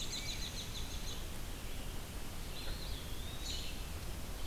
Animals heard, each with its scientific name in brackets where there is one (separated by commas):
Red-eyed Vireo (Vireo olivaceus), Eastern Wood-Pewee (Contopus virens), American Robin (Turdus migratorius)